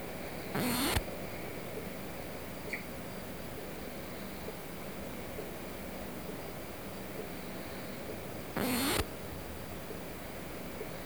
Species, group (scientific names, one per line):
Poecilimon lodosi
Orthoptera